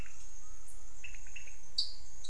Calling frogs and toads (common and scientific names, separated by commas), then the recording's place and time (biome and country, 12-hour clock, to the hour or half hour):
dwarf tree frog (Dendropsophus nanus), pointedbelly frog (Leptodactylus podicipinus)
Cerrado, Brazil, ~6pm